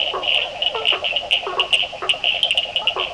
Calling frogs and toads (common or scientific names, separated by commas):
blacksmith tree frog, yellow cururu toad, Cochran's lime tree frog